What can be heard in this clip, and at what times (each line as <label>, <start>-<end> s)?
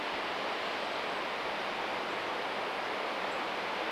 Golden-crowned Kinglet song, 0-2 s
unidentified bird chip note, 2-4 s